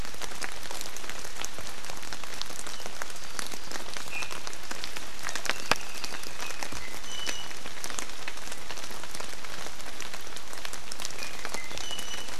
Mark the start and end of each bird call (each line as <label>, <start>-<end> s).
Iiwi (Drepanis coccinea), 4.0-4.2 s
Apapane (Himatione sanguinea), 5.4-6.6 s
Iiwi (Drepanis coccinea), 7.0-7.5 s
Iiwi (Drepanis coccinea), 11.1-12.3 s